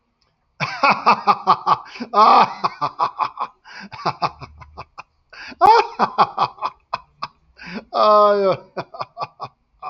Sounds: Laughter